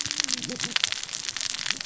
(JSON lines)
{"label": "biophony, cascading saw", "recorder": "SoundTrap 600 or HydroMoth"}